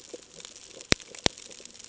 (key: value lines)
label: ambient
recorder: HydroMoth